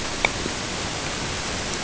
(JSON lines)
{"label": "ambient", "recorder": "HydroMoth"}